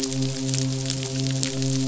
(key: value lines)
label: biophony, midshipman
recorder: SoundTrap 500